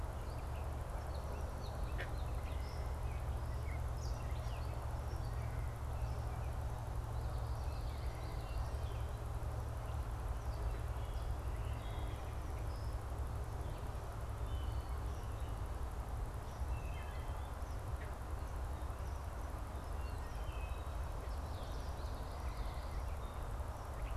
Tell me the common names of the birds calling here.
Gray Catbird, Common Yellowthroat, Wood Thrush